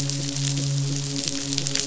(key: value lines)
label: biophony, midshipman
recorder: SoundTrap 500